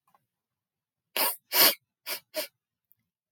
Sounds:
Sniff